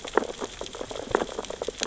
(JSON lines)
{"label": "biophony, sea urchins (Echinidae)", "recorder": "SoundTrap 600 or HydroMoth"}